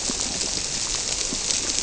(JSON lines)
{"label": "biophony", "recorder": "SoundTrap 300"}